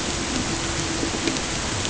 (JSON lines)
{"label": "ambient", "recorder": "HydroMoth"}